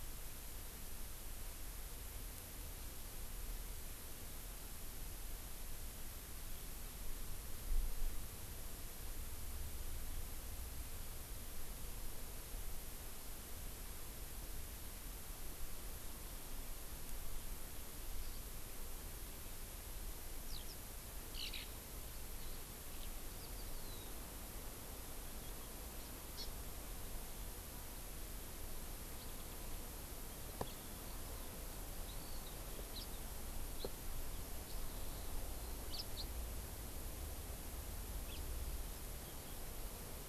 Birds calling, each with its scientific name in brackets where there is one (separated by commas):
House Finch (Haemorhous mexicanus), Hawaii Amakihi (Chlorodrepanis virens), Eurasian Skylark (Alauda arvensis)